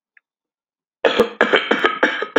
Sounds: Throat clearing